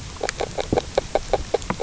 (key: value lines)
label: biophony, grazing
recorder: SoundTrap 300